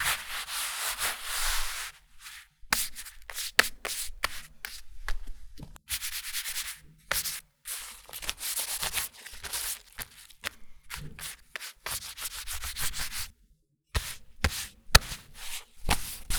Is the person making the sound unconscious?
no